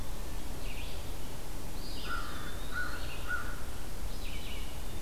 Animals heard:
Hermit Thrush (Catharus guttatus), Red-eyed Vireo (Vireo olivaceus), American Crow (Corvus brachyrhynchos), Eastern Wood-Pewee (Contopus virens)

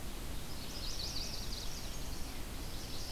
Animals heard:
Yellow-rumped Warbler (Setophaga coronata), Chestnut-sided Warbler (Setophaga pensylvanica)

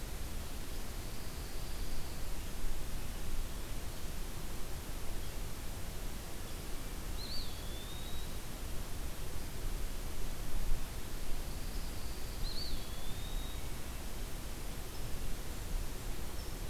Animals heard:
Pine Warbler (Setophaga pinus), Eastern Wood-Pewee (Contopus virens)

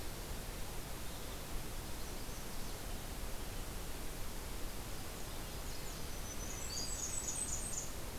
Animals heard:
Blackburnian Warbler (Setophaga fusca), Black-throated Green Warbler (Setophaga virens), Red-breasted Nuthatch (Sitta canadensis), Magnolia Warbler (Setophaga magnolia), Nashville Warbler (Leiothlypis ruficapilla)

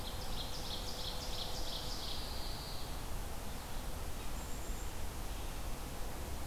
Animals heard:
Pine Warbler (Setophaga pinus), Black-capped Chickadee (Poecile atricapillus), Red-eyed Vireo (Vireo olivaceus), Ovenbird (Seiurus aurocapilla)

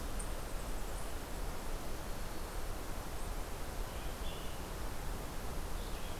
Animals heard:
Red-eyed Vireo (Vireo olivaceus), Eastern Chipmunk (Tamias striatus)

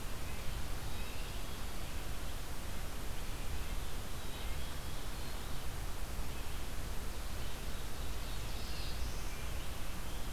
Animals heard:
Black-throated Blue Warbler (Setophaga caerulescens), Red-eyed Vireo (Vireo olivaceus), Black-capped Chickadee (Poecile atricapillus)

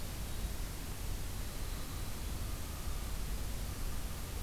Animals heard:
Common Raven (Corvus corax), Winter Wren (Troglodytes hiemalis)

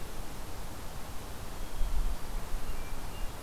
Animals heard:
Hermit Thrush (Catharus guttatus)

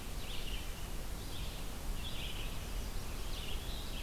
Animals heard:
Chestnut-sided Warbler (Setophaga pensylvanica), Red-eyed Vireo (Vireo olivaceus)

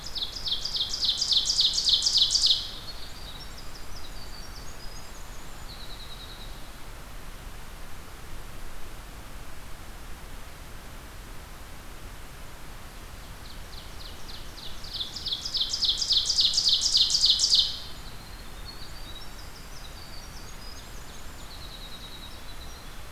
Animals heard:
Ovenbird (Seiurus aurocapilla), Winter Wren (Troglodytes hiemalis)

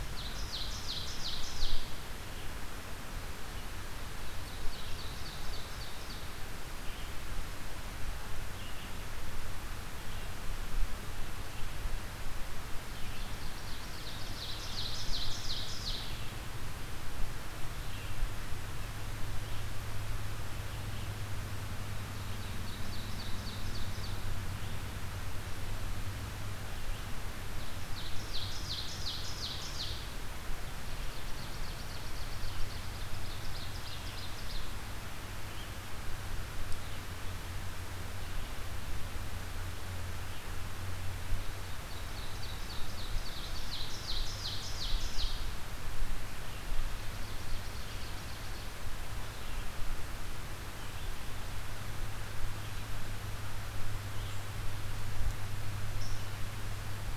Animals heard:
Red-eyed Vireo (Vireo olivaceus), Ovenbird (Seiurus aurocapilla)

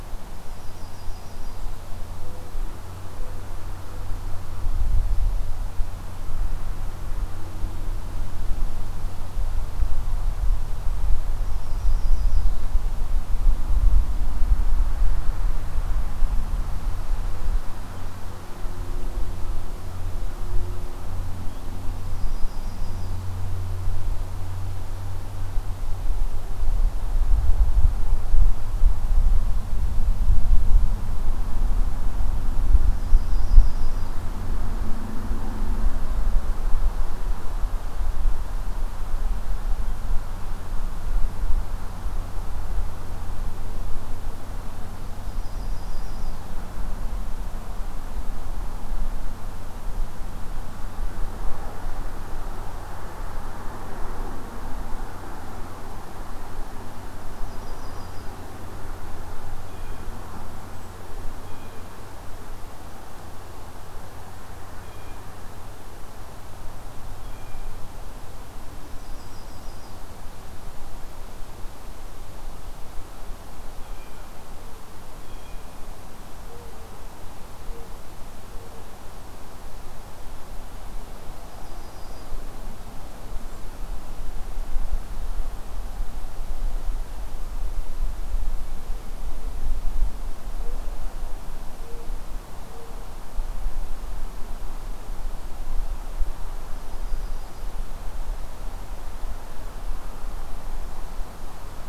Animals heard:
Blue Jay (Cyanocitta cristata), Mourning Dove (Zenaida macroura), Golden-crowned Kinglet (Regulus satrapa), Yellow-rumped Warbler (Setophaga coronata)

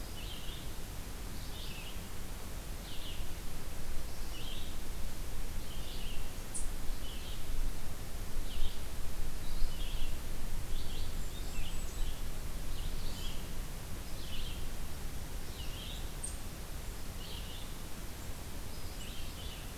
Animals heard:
Red-eyed Vireo (Vireo olivaceus), Golden-crowned Kinglet (Regulus satrapa)

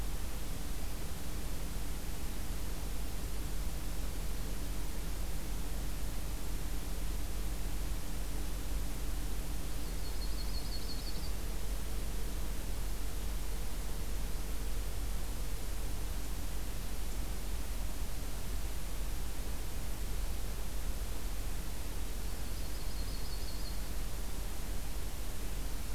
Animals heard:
Yellow-rumped Warbler (Setophaga coronata)

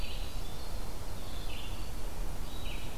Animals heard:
Red-eyed Vireo (Vireo olivaceus), Winter Wren (Troglodytes hiemalis)

